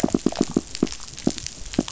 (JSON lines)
{"label": "biophony, pulse", "recorder": "SoundTrap 500"}